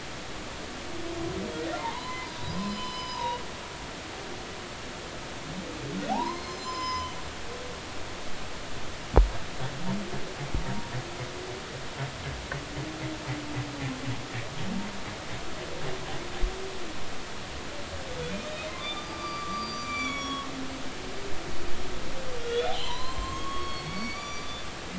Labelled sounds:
1.7	3.4	humpback whale, 0.80 to 5.1 kHz
6.1	7.1	humpback whale, 0.80 to 7.3 kHz
18.7	20.5	humpback whale, 0.99 to 7.1 kHz
22.5	24.6	humpback whale, 0.90 to 7.6 kHz

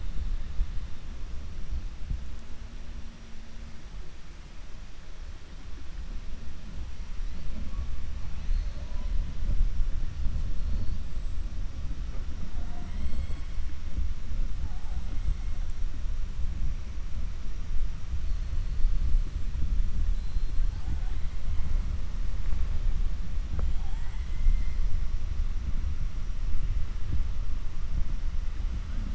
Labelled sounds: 20.1	20.6	killer whale, 3.6 to 4.2 kHz

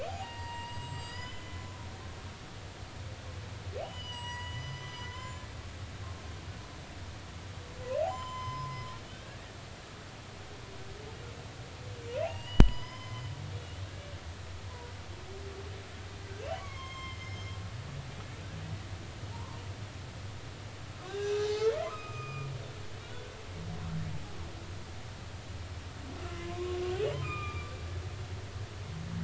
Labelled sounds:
0.1	1.7	humpback whale, 0.80 to 7.8 kHz
3.8	5.4	humpback whale, 0.90 to 8.0 kHz
8.1	8.8	humpback whale, 0.93 to 7.2 kHz
9.1	9.5	humpback whale, 1.5 to 1.9 kHz
12.2	13.3	humpback whale, 0.80 to 5.2 kHz
16.2	17.5	humpback whale, 0.99 to 6.4 kHz
19.3	19.6	humpback whale, 0.83 to 1.2 kHz
21.0	22.5	humpback whale, 0.80 to 5.1 kHz
23.0	23.3	humpback whale, 3.3 to 3.5 kHz
26.3	26.8	humpback whale, 0.96 to 1.2 kHz
27.1	27.8	humpback whale, 0.86 to 2.6 kHz

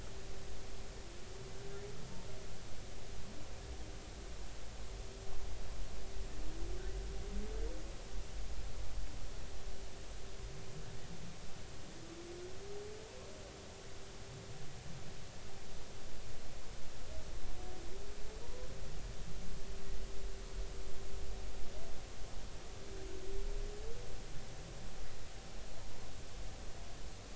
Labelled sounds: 18.4	18.7	humpback whale, 0.90 to 1.1 kHz

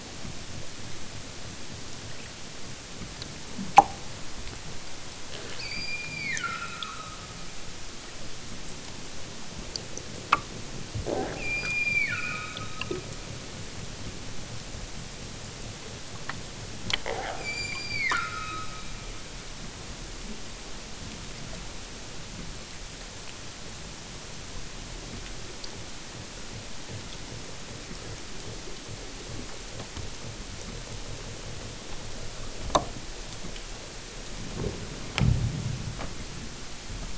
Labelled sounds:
5.5	7.4	killer whale, southern Alaska resident, 0.96 to 5.7 kHz
11.3	13.2	killer whale, southern Alaska resident, 0.87 to 5.5 kHz
17.3	19.0	killer whale, southern Alaska resident, 0.78 to 8.0 kHz

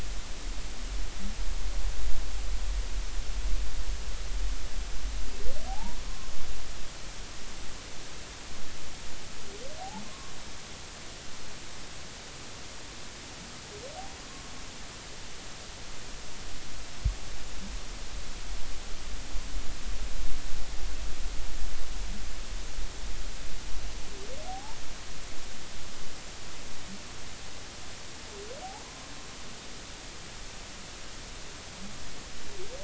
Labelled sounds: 5.7	6.3	humpback whale, 0.80 to 1.1 kHz
10.0	10.3	humpback whale, 0.99 to 1.2 kHz
24.4	24.8	humpback whale, 0.80 to 1.0 kHz

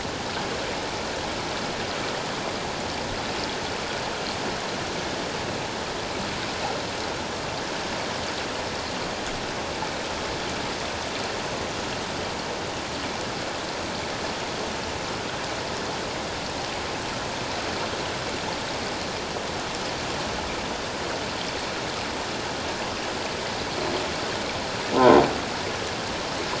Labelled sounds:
24.9	25.2	croaking sound likely from a nearby submerged object, 0.78 to 1.1 kHz

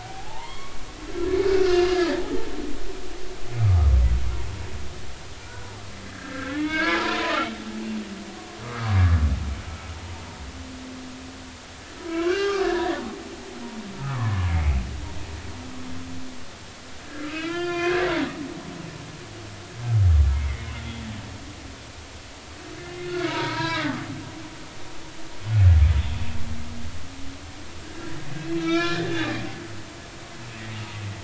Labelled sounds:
0.0	2.1	humpback whale, 0.80 to 3.3 kHz
3.6	3.9	humpback whale, 1.1 to 1.3 kHz
6.1	7.3	humpback whale, 0.86 to 3.0 kHz
8.3	8.9	humpback whale, 1.0 to 1.3 kHz
10.0	10.2	humpback whale, 0.86 to 0.99 kHz
12.0	13.0	humpback whale, 0.96 to 2.8 kHz
13.9	14.7	humpback whale, 0.96 to 2.3 kHz
17.1	18.1	humpback whale, 0.96 to 4.6 kHz
20.3	20.7	humpback whale, 1.8 to 2.3 kHz
23.0	24.0	humpback whale, 0.90 to 4.3 kHz
25.5	25.8	humpback whale, 1.4 to 1.5 kHz
27.8	29.3	humpback whale, 1.2 to 5.4 kHz

